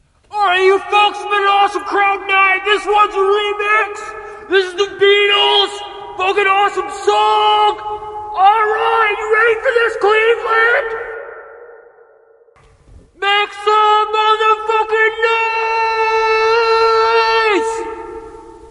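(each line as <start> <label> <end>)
0.3 A man shouting into a microphone, creating a muffled, echoing voice. 11.8
13.2 A man shouting into a microphone, creating a muffled, echoing voice. 18.7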